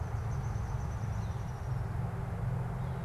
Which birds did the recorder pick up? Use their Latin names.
Dryobates pubescens